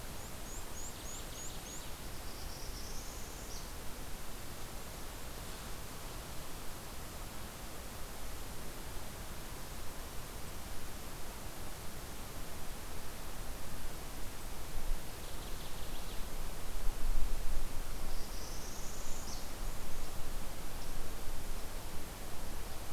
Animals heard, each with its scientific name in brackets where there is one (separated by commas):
Northern Waterthrush (Parkesia noveboracensis), Northern Parula (Setophaga americana), Cape May Warbler (Setophaga tigrina)